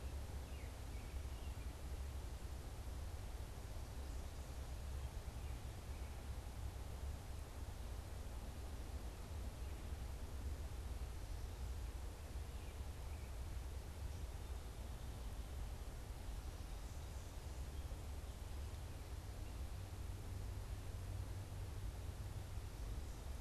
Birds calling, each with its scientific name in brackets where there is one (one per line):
American Robin (Turdus migratorius)